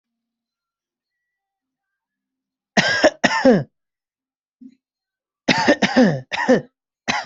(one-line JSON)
{"expert_labels": [{"quality": "ok", "cough_type": "unknown", "dyspnea": false, "wheezing": false, "stridor": false, "choking": false, "congestion": false, "nothing": true, "diagnosis": "healthy cough", "severity": "pseudocough/healthy cough"}], "age": 21, "gender": "male", "respiratory_condition": false, "fever_muscle_pain": false, "status": "COVID-19"}